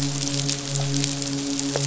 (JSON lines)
{"label": "biophony, midshipman", "recorder": "SoundTrap 500"}